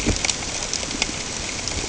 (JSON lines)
{"label": "ambient", "recorder": "HydroMoth"}